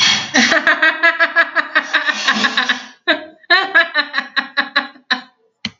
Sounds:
Laughter